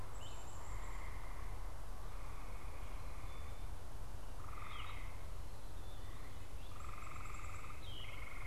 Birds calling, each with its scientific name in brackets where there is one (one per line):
Yellow-throated Vireo (Vireo flavifrons)
Black-capped Chickadee (Poecile atricapillus)
Great Crested Flycatcher (Myiarchus crinitus)